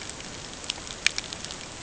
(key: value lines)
label: ambient
recorder: HydroMoth